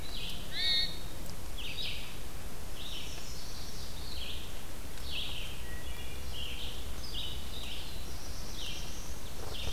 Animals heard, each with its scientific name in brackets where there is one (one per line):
Red-eyed Vireo (Vireo olivaceus)
Hermit Thrush (Catharus guttatus)
Black-throated Blue Warbler (Setophaga caerulescens)
Wood Thrush (Hylocichla mustelina)
Chestnut-sided Warbler (Setophaga pensylvanica)